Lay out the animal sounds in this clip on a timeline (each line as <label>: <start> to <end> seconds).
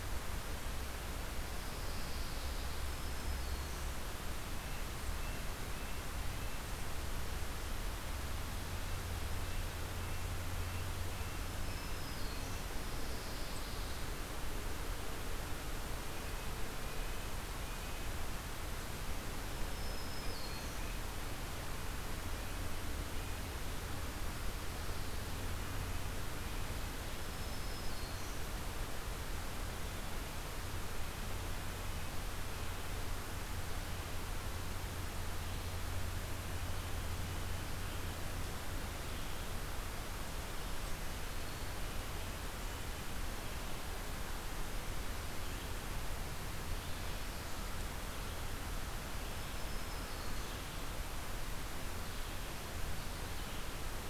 Pine Warbler (Setophaga pinus): 1.5 to 3.0 seconds
Black-throated Green Warbler (Setophaga virens): 2.8 to 4.0 seconds
Black-throated Green Warbler (Setophaga virens): 11.3 to 12.7 seconds
Pine Warbler (Setophaga pinus): 12.7 to 14.1 seconds
Black-throated Green Warbler (Setophaga virens): 19.5 to 21.1 seconds
Black-throated Green Warbler (Setophaga virens): 27.0 to 28.6 seconds
Red-eyed Vireo (Vireo olivaceus): 46.6 to 54.1 seconds
Black-throated Green Warbler (Setophaga virens): 49.1 to 50.8 seconds